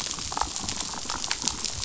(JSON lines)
{"label": "biophony, damselfish", "recorder": "SoundTrap 500"}